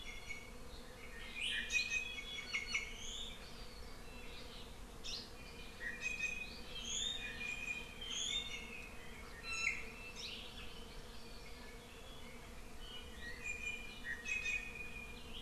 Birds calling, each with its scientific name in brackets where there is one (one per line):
Hawaii Amakihi (Chlorodrepanis virens)
Iiwi (Drepanis coccinea)